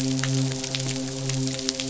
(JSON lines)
{"label": "biophony, midshipman", "recorder": "SoundTrap 500"}